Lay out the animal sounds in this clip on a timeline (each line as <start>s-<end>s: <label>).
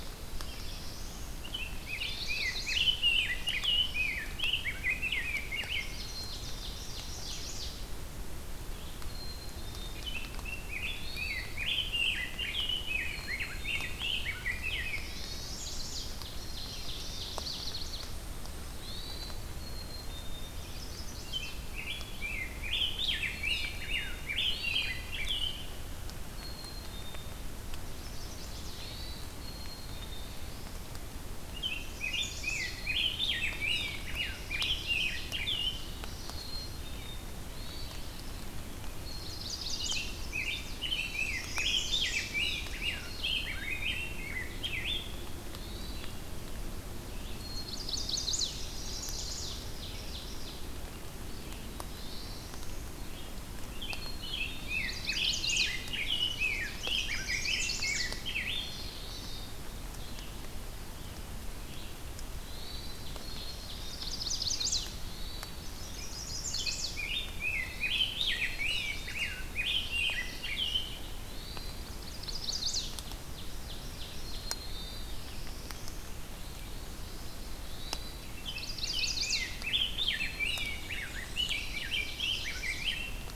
0.2s-1.3s: Black-throated Blue Warbler (Setophaga caerulescens)
1.4s-6.2s: Rose-breasted Grosbeak (Pheucticus ludovicianus)
1.8s-3.0s: Chestnut-sided Warbler (Setophaga pensylvanica)
2.8s-4.4s: Common Yellowthroat (Geothlypis trichas)
5.7s-7.4s: Ovenbird (Seiurus aurocapilla)
6.0s-7.0s: Black-capped Chickadee (Poecile atricapillus)
6.8s-7.8s: Chestnut-sided Warbler (Setophaga pensylvanica)
8.9s-10.2s: Black-capped Chickadee (Poecile atricapillus)
9.9s-15.4s: Rose-breasted Grosbeak (Pheucticus ludovicianus)
10.8s-11.6s: Hermit Thrush (Catharus guttatus)
13.0s-14.0s: Black-capped Chickadee (Poecile atricapillus)
14.5s-16.0s: Black-throated Blue Warbler (Setophaga caerulescens)
14.9s-15.7s: Hermit Thrush (Catharus guttatus)
15.3s-16.2s: Chestnut-sided Warbler (Setophaga pensylvanica)
16.2s-18.1s: Ovenbird (Seiurus aurocapilla)
16.2s-17.4s: Black-capped Chickadee (Poecile atricapillus)
17.2s-18.1s: Chestnut-sided Warbler (Setophaga pensylvanica)
18.7s-19.4s: Hermit Thrush (Catharus guttatus)
19.5s-20.7s: Black-capped Chickadee (Poecile atricapillus)
20.4s-21.6s: Chestnut-sided Warbler (Setophaga pensylvanica)
21.2s-25.9s: Rose-breasted Grosbeak (Pheucticus ludovicianus)
23.2s-24.3s: Black-capped Chickadee (Poecile atricapillus)
24.3s-25.2s: Hermit Thrush (Catharus guttatus)
26.3s-27.4s: Black-capped Chickadee (Poecile atricapillus)
27.8s-28.9s: Chestnut-sided Warbler (Setophaga pensylvanica)
28.6s-29.4s: Hermit Thrush (Catharus guttatus)
29.3s-30.4s: Black-capped Chickadee (Poecile atricapillus)
30.0s-30.8s: Black-throated Blue Warbler (Setophaga caerulescens)
31.4s-35.9s: Rose-breasted Grosbeak (Pheucticus ludovicianus)
31.9s-32.8s: Chestnut-sided Warbler (Setophaga pensylvanica)
32.6s-33.7s: Black-capped Chickadee (Poecile atricapillus)
33.9s-35.3s: Ovenbird (Seiurus aurocapilla)
35.6s-36.8s: Common Yellowthroat (Geothlypis trichas)
36.2s-37.4s: Black-capped Chickadee (Poecile atricapillus)
36.8s-53.4s: Red-eyed Vireo (Vireo olivaceus)
37.4s-38.1s: Hermit Thrush (Catharus guttatus)
38.9s-40.8s: Chestnut-sided Warbler (Setophaga pensylvanica)
39.2s-45.3s: Rose-breasted Grosbeak (Pheucticus ludovicianus)
41.2s-42.3s: Chestnut-sided Warbler (Setophaga pensylvanica)
42.8s-44.2s: Black-capped Chickadee (Poecile atricapillus)
45.3s-46.3s: Hermit Thrush (Catharus guttatus)
47.3s-48.6s: Black-capped Chickadee (Poecile atricapillus)
47.4s-49.7s: Chestnut-sided Warbler (Setophaga pensylvanica)
48.5s-50.7s: Ovenbird (Seiurus aurocapilla)
51.4s-52.9s: Black-throated Blue Warbler (Setophaga caerulescens)
51.9s-52.6s: Hermit Thrush (Catharus guttatus)
53.5s-58.9s: Rose-breasted Grosbeak (Pheucticus ludovicianus)
53.9s-55.0s: Black-capped Chickadee (Poecile atricapillus)
54.5s-58.2s: Chestnut-sided Warbler (Setophaga pensylvanica)
58.1s-59.6s: Common Yellowthroat (Geothlypis trichas)
58.5s-59.6s: Black-capped Chickadee (Poecile atricapillus)
59.8s-62.0s: Red-eyed Vireo (Vireo olivaceus)
62.4s-63.0s: Hermit Thrush (Catharus guttatus)
62.8s-64.4s: Ovenbird (Seiurus aurocapilla)
63.0s-64.3s: Black-capped Chickadee (Poecile atricapillus)
63.8s-65.0s: Chestnut-sided Warbler (Setophaga pensylvanica)
64.9s-65.6s: Hermit Thrush (Catharus guttatus)
65.5s-67.0s: Chestnut-sided Warbler (Setophaga pensylvanica)
66.5s-70.9s: Rose-breasted Grosbeak (Pheucticus ludovicianus)
67.5s-68.1s: Hermit Thrush (Catharus guttatus)
68.1s-69.3s: Chestnut-sided Warbler (Setophaga pensylvanica)
68.2s-69.2s: Black-capped Chickadee (Poecile atricapillus)
69.5s-70.9s: Common Yellowthroat (Geothlypis trichas)
71.1s-71.8s: Hermit Thrush (Catharus guttatus)
71.8s-72.9s: Chestnut-sided Warbler (Setophaga pensylvanica)
72.6s-74.5s: Ovenbird (Seiurus aurocapilla)
74.1s-75.2s: Black-capped Chickadee (Poecile atricapillus)
74.6s-75.2s: Hermit Thrush (Catharus guttatus)
74.7s-76.2s: Black-throated Blue Warbler (Setophaga caerulescens)
76.3s-77.5s: Northern Parula (Setophaga americana)
77.5s-78.3s: Hermit Thrush (Catharus guttatus)
78.3s-79.4s: Chestnut-sided Warbler (Setophaga pensylvanica)
78.5s-83.4s: Rose-breasted Grosbeak (Pheucticus ludovicianus)
80.5s-81.6s: Black-and-white Warbler (Mniotilta varia)
81.4s-82.9s: Chestnut-sided Warbler (Setophaga pensylvanica)